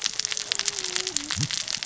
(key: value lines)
label: biophony, cascading saw
recorder: SoundTrap 600 or HydroMoth